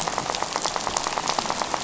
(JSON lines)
{"label": "biophony, rattle", "recorder": "SoundTrap 500"}